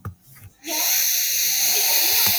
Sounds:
Sniff